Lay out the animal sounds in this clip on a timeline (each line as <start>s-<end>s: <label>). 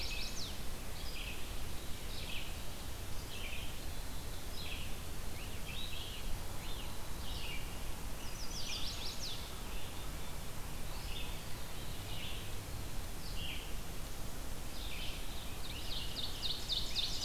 0.0s-0.6s: Chestnut-sided Warbler (Setophaga pensylvanica)
0.0s-17.2s: Red-eyed Vireo (Vireo olivaceus)
5.2s-7.8s: Scarlet Tanager (Piranga olivacea)
8.0s-9.5s: Chestnut-sided Warbler (Setophaga pensylvanica)
15.3s-17.2s: Scarlet Tanager (Piranga olivacea)
15.6s-17.2s: Ovenbird (Seiurus aurocapilla)